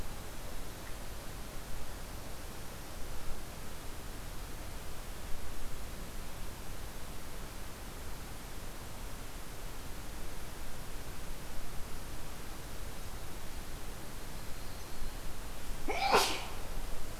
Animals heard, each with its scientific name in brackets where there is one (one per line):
Yellow-rumped Warbler (Setophaga coronata)